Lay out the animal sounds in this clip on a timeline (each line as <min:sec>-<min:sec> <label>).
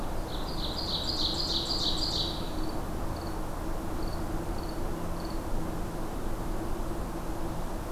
0:00.0-0:02.9 Ovenbird (Seiurus aurocapilla)